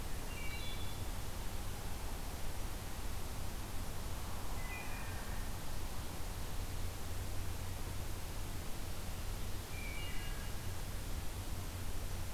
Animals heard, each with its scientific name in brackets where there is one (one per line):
Wood Thrush (Hylocichla mustelina)